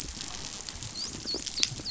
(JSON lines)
{"label": "biophony, dolphin", "recorder": "SoundTrap 500"}